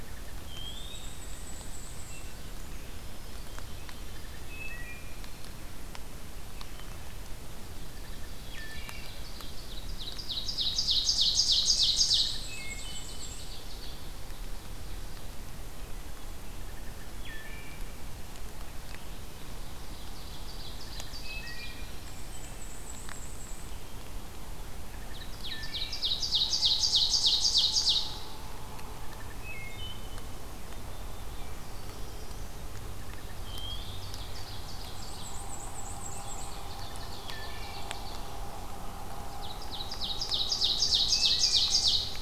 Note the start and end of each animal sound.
0.0s-1.3s: Wood Thrush (Hylocichla mustelina)
0.4s-2.4s: Black-and-white Warbler (Mniotilta varia)
1.9s-2.5s: Wood Thrush (Hylocichla mustelina)
2.5s-4.7s: Black-capped Chickadee (Poecile atricapillus)
4.1s-5.5s: Wood Thrush (Hylocichla mustelina)
6.5s-7.1s: Wood Thrush (Hylocichla mustelina)
7.9s-9.3s: Wood Thrush (Hylocichla mustelina)
8.2s-15.4s: Ovenbird (Seiurus aurocapilla)
11.6s-13.3s: Wood Thrush (Hylocichla mustelina)
11.8s-13.6s: Black-and-white Warbler (Mniotilta varia)
15.7s-16.4s: Wood Thrush (Hylocichla mustelina)
16.6s-18.0s: Wood Thrush (Hylocichla mustelina)
19.3s-21.9s: Ovenbird (Seiurus aurocapilla)
20.7s-22.3s: Wood Thrush (Hylocichla mustelina)
21.7s-23.7s: Black-and-white Warbler (Mniotilta varia)
24.8s-26.1s: Wood Thrush (Hylocichla mustelina)
25.0s-28.3s: Ovenbird (Seiurus aurocapilla)
29.0s-30.5s: Wood Thrush (Hylocichla mustelina)
30.6s-31.5s: Black-capped Chickadee (Poecile atricapillus)
31.5s-32.8s: Black-throated Blue Warbler (Setophaga caerulescens)
32.9s-34.2s: Wood Thrush (Hylocichla mustelina)
33.5s-35.4s: Ovenbird (Seiurus aurocapilla)
34.8s-36.7s: Black-and-white Warbler (Mniotilta varia)
36.0s-38.4s: Ovenbird (Seiurus aurocapilla)
36.9s-38.0s: Wood Thrush (Hylocichla mustelina)
39.3s-42.2s: Ovenbird (Seiurus aurocapilla)
40.9s-41.9s: Wood Thrush (Hylocichla mustelina)

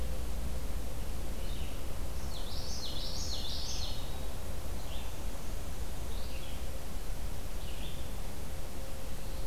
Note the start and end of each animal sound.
0.0s-9.5s: Red-eyed Vireo (Vireo olivaceus)
2.2s-4.2s: Common Yellowthroat (Geothlypis trichas)

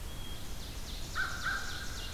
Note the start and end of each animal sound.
0.0s-1.0s: Hermit Thrush (Catharus guttatus)
0.2s-2.1s: Ovenbird (Seiurus aurocapilla)
0.9s-2.1s: American Crow (Corvus brachyrhynchos)

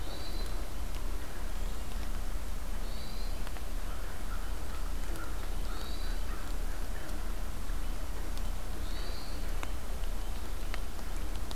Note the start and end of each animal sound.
0.0s-0.6s: Hermit Thrush (Catharus guttatus)
2.8s-3.4s: Hermit Thrush (Catharus guttatus)
3.8s-7.2s: American Crow (Corvus brachyrhynchos)
5.6s-6.2s: Hermit Thrush (Catharus guttatus)
8.7s-9.4s: Hermit Thrush (Catharus guttatus)

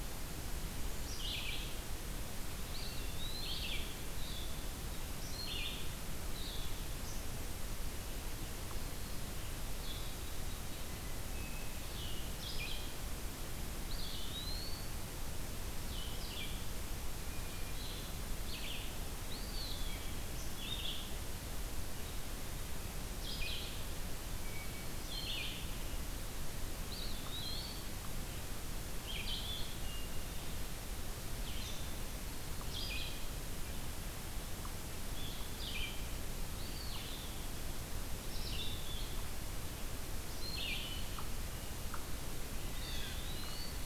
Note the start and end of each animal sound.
0.0s-29.6s: Red-eyed Vireo (Vireo olivaceus)
2.6s-3.9s: Eastern Wood-Pewee (Contopus virens)
10.1s-11.1s: Black-capped Chickadee (Poecile atricapillus)
10.8s-12.0s: Hermit Thrush (Catharus guttatus)
13.8s-15.0s: Eastern Wood-Pewee (Contopus virens)
19.2s-19.9s: Eastern Wood-Pewee (Contopus virens)
24.4s-25.3s: Hermit Thrush (Catharus guttatus)
26.7s-28.1s: Eastern Wood-Pewee (Contopus virens)
29.7s-30.6s: Hermit Thrush (Catharus guttatus)
31.1s-43.9s: Red-eyed Vireo (Vireo olivaceus)
32.6s-43.9s: Blue-headed Vireo (Vireo solitarius)
36.5s-37.1s: Eastern Wood-Pewee (Contopus virens)
42.6s-43.7s: Eastern Wood-Pewee (Contopus virens)

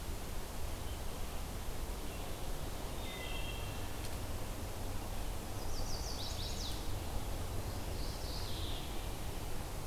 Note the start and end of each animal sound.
2.8s-4.0s: Wood Thrush (Hylocichla mustelina)
5.3s-6.8s: Chestnut-sided Warbler (Setophaga pensylvanica)
7.6s-9.0s: Mourning Warbler (Geothlypis philadelphia)

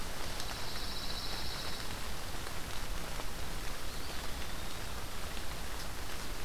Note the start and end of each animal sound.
0.0s-2.4s: Pine Warbler (Setophaga pinus)
3.8s-4.9s: Eastern Wood-Pewee (Contopus virens)

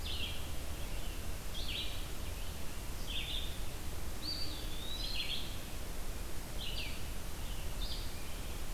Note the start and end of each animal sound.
0.0s-8.7s: Red-eyed Vireo (Vireo olivaceus)
4.0s-5.9s: Eastern Wood-Pewee (Contopus virens)

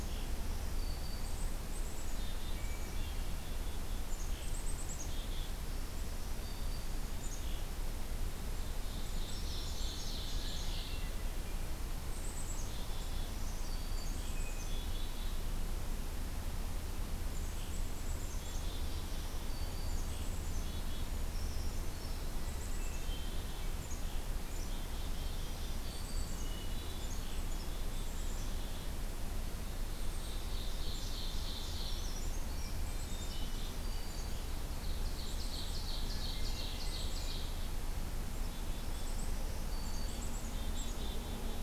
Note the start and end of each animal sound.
0.1s-1.6s: Black-throated Green Warbler (Setophaga virens)
1.3s-3.0s: Black-capped Chickadee (Poecile atricapillus)
2.0s-3.9s: Hermit Thrush (Catharus guttatus)
4.4s-5.7s: Black-capped Chickadee (Poecile atricapillus)
5.5s-7.0s: Black-throated Green Warbler (Setophaga virens)
7.2s-7.8s: Black-capped Chickadee (Poecile atricapillus)
8.8s-11.2s: Ovenbird (Seiurus aurocapilla)
10.4s-11.7s: Hermit Thrush (Catharus guttatus)
12.1s-13.3s: Black-capped Chickadee (Poecile atricapillus)
12.9s-14.2s: Black-throated Green Warbler (Setophaga virens)
13.9s-15.5s: Hermit Thrush (Catharus guttatus)
14.0s-15.5s: Black-capped Chickadee (Poecile atricapillus)
17.2s-19.3s: Black-capped Chickadee (Poecile atricapillus)
18.8s-20.1s: Black-throated Green Warbler (Setophaga virens)
20.0s-21.2s: Black-capped Chickadee (Poecile atricapillus)
20.7s-22.3s: Brown Creeper (Certhia americana)
22.2s-23.8s: Hermit Thrush (Catharus guttatus)
22.5s-23.8s: Black-capped Chickadee (Poecile atricapillus)
24.5s-25.3s: Black-capped Chickadee (Poecile atricapillus)
25.0s-26.6s: Black-throated Green Warbler (Setophaga virens)
25.7s-27.3s: Hermit Thrush (Catharus guttatus)
25.8s-26.5s: Black-capped Chickadee (Poecile atricapillus)
27.3s-29.0s: Black-capped Chickadee (Poecile atricapillus)
30.0s-32.2s: Ovenbird (Seiurus aurocapilla)
31.7s-33.2s: Brown Creeper (Certhia americana)
32.8s-33.9s: Black-capped Chickadee (Poecile atricapillus)
33.1s-34.5s: Black-throated Green Warbler (Setophaga virens)
34.7s-37.7s: Ovenbird (Seiurus aurocapilla)
35.1s-36.0s: Black-capped Chickadee (Poecile atricapillus)
36.5s-37.8s: Black-capped Chickadee (Poecile atricapillus)
38.7s-40.4s: Black-throated Green Warbler (Setophaga virens)
38.9s-41.6s: Black-capped Chickadee (Poecile atricapillus)

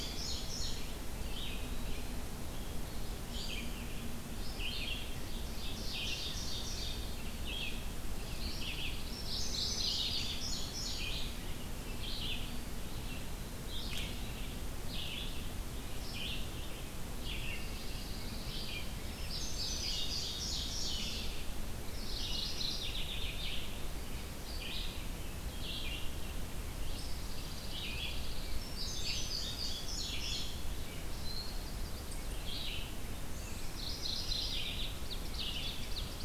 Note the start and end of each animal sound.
0.0s-1.2s: Indigo Bunting (Passerina cyanea)
0.0s-36.2s: Red-eyed Vireo (Vireo olivaceus)
0.9s-2.3s: Eastern Wood-Pewee (Contopus virens)
5.4s-7.1s: Ovenbird (Seiurus aurocapilla)
8.2s-9.8s: Pine Warbler (Setophaga pinus)
9.1s-11.4s: Indigo Bunting (Passerina cyanea)
9.1s-10.5s: Mourning Warbler (Geothlypis philadelphia)
12.2s-13.6s: Eastern Wood-Pewee (Contopus virens)
17.3s-18.9s: Pine Warbler (Setophaga pinus)
19.1s-21.4s: Indigo Bunting (Passerina cyanea)
21.9s-23.6s: Mourning Warbler (Geothlypis philadelphia)
26.8s-28.7s: Pine Warbler (Setophaga pinus)
28.4s-30.7s: Indigo Bunting (Passerina cyanea)
31.0s-32.4s: Chestnut-sided Warbler (Setophaga pensylvanica)
33.6s-35.0s: Mourning Warbler (Geothlypis philadelphia)
34.9s-36.2s: Ovenbird (Seiurus aurocapilla)

